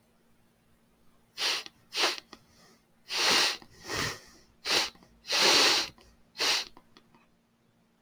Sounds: Sniff